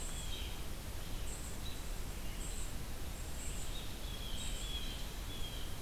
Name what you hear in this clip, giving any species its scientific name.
Cyanocitta cristata, unidentified call, Vireo olivaceus